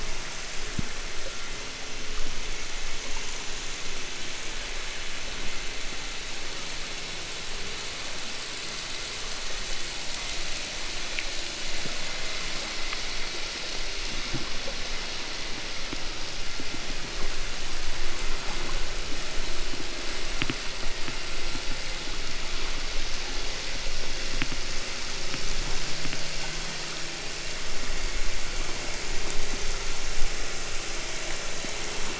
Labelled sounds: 0.9	2.7	vessel noise, 1.1 to 2.7 kHz
11.4	13.5	vessel noise, 1.7 to 2.7 kHz

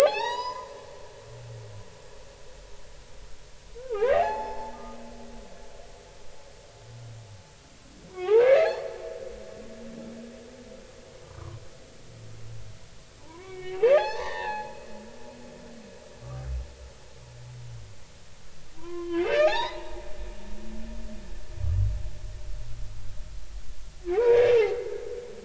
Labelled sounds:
0.0	1.6	humpback whale, 0.80 to 7.0 kHz
3.8	5.0	humpback whale, 0.80 to 5.3 kHz
8.1	8.8	humpback whale, 0.80 to 3.5 kHz
11.3	11.6	humpback whale, 0.96 to 1.3 kHz
13.2	15.3	humpback whale, 0.80 to 6.3 kHz
18.8	20.0	humpback whale, 0.80 to 4.4 kHz
24.1	24.6	humpback whale, 0.80 to 3.7 kHz

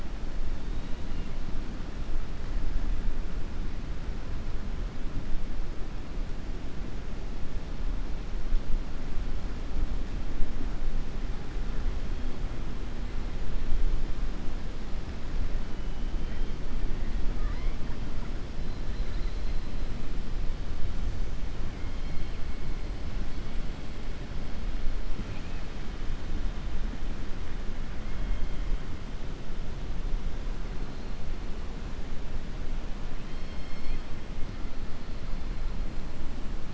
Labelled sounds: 17.3	17.8	killer whale, southern resident, 0.97 to 3.2 kHz
25.2	25.6	killer whale, southern resident, 1.7 to 3.1 kHz
33.2	34.0	killer whale, southern resident, 2.0 to 5.4 kHz

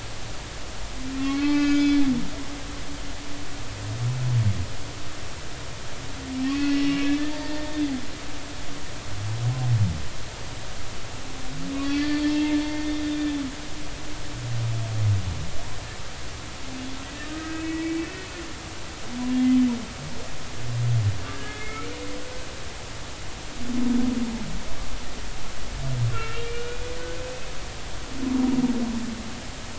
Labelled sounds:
1.2	2.1	humpback whale, 1.0 to 5.2 kHz
6.5	6.9	humpback whale, 1.9 to 2.7 kHz
7.4	7.8	humpback whale, 1.8 to 1.9 kHz
11.7	12.6	humpback whale, 0.86 to 4.7 kHz
12.8	13.2	humpback whale, 3.5 to 3.6 kHz
17.3	18.1	humpback whale, 1.5 to 2.4 kHz
21.3	21.9	humpback whale, 1.6 to 2.4 kHz
26.1	26.9	humpback whale, 1.3 to 2.9 kHz
28.1	28.5	humpback whale, 2.5 to 2.6 kHz

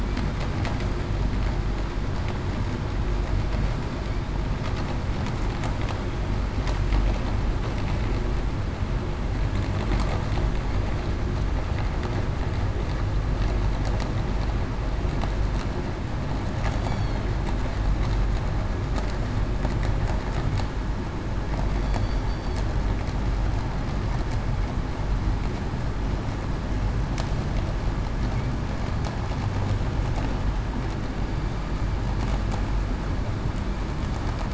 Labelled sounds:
16.7	17.3	killer whale, southern resident, 4.1 to 4.6 kHz
21.8	22.6	killer whale, southern resident, 3.4 to 4.6 kHz

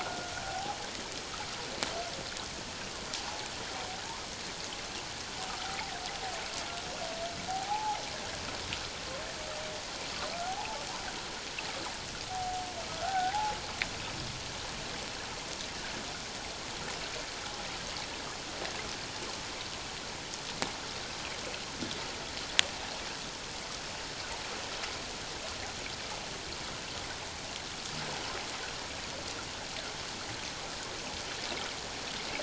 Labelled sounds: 0.0	0.8	humpback whale, 0.78 to 1.5 kHz
3.2	3.5	humpback whale, 0.81 to 1.0 kHz
7.5	8.0	humpback whale, 0.78 to 0.94 kHz
10.4	10.8	humpback whale, 0.78 to 1.0 kHz
12.9	13.6	humpback whale, 0.78 to 1.6 kHz

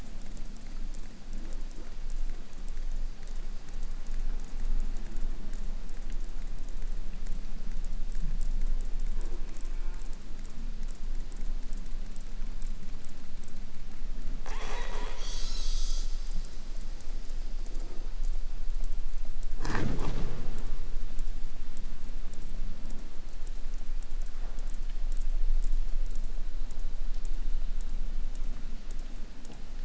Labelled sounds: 9.2	10.3	killer whale, southern resident, J pod, call S04, 0.23 to 3.0 kHz
14.4	16.2	killer whale, 0.06 to 8.0 kHz

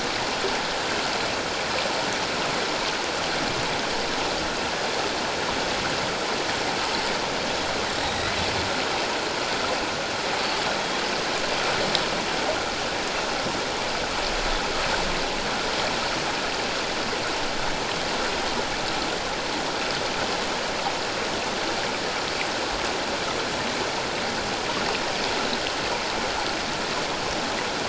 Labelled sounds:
8.0	8.3	Pacific white-sided dolphin, 3.7 to 3.9 kHz

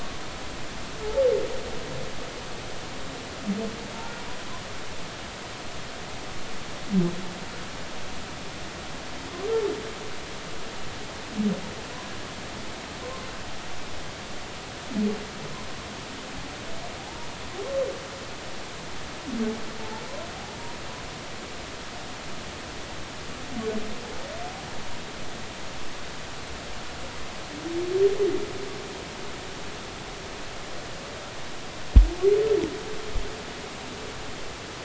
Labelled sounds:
17.0	17.3	humpback whale, 0.80 to 0.99 kHz

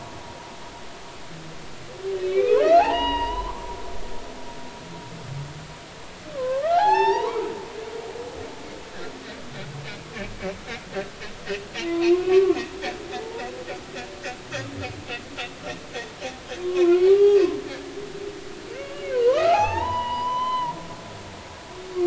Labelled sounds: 2.2	3.6	humpback whale, 0.80 to 5.0 kHz
6.3	7.5	humpback whale, 0.80 to 6.5 kHz
11.9	12.6	humpback whale, 0.86 to 1.2 kHz
13.2	13.5	humpback whale, 0.83 to 0.99 kHz
16.6	17.4	humpback whale, 0.99 to 2.9 kHz
19.1	20.7	humpback whale, 0.80 to 6.3 kHz

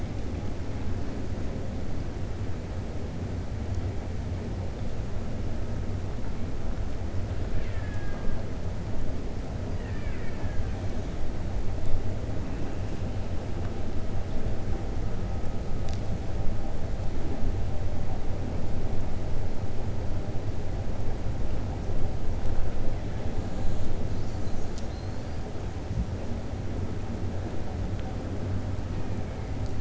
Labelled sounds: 7.5	8.4	killer whale, Bigg's (transient), 0.67 to 3.7 kHz
9.7	10.7	killer whale, Bigg's (transient), 0.89 to 3.0 kHz

